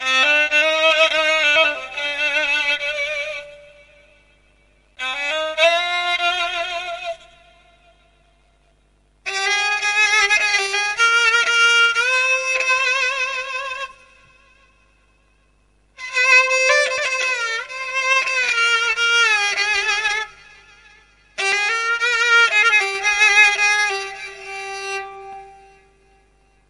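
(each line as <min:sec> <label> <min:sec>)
0:00.0 A person is playing a spike fiddle. 0:25.5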